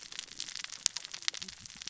{"label": "biophony, cascading saw", "recorder": "SoundTrap 600 or HydroMoth"}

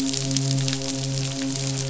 {"label": "biophony, midshipman", "recorder": "SoundTrap 500"}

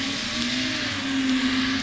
{"label": "anthrophony, boat engine", "recorder": "SoundTrap 500"}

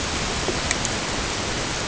{"label": "ambient", "recorder": "HydroMoth"}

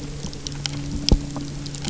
{"label": "anthrophony, boat engine", "recorder": "SoundTrap 300"}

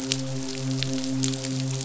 {"label": "biophony, midshipman", "recorder": "SoundTrap 500"}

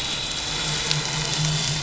{"label": "anthrophony, boat engine", "recorder": "SoundTrap 500"}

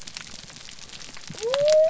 {"label": "biophony", "recorder": "SoundTrap 300"}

